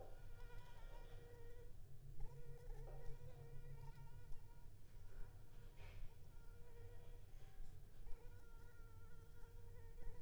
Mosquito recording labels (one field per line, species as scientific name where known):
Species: Anopheles arabiensis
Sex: female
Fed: unfed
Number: one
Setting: cup